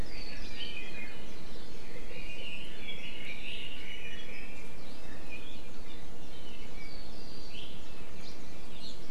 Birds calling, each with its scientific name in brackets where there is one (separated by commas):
Red-billed Leiothrix (Leiothrix lutea), Iiwi (Drepanis coccinea), Hawaii Creeper (Loxops mana)